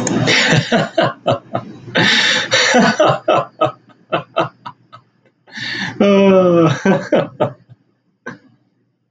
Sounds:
Laughter